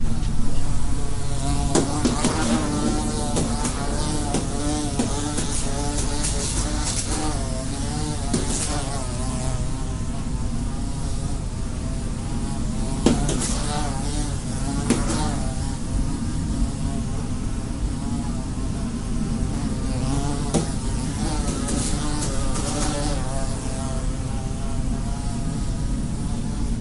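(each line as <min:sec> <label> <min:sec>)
0:00.0 A fly repeatedly hits a window loudly. 0:26.8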